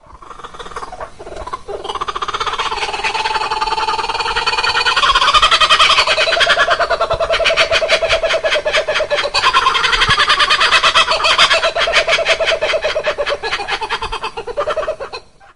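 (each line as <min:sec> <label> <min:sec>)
0:00.0 A kookaburra is calling. 0:03.1
0:03.0 Two kookaburras calling with alternating laughing vocalizations. 0:15.3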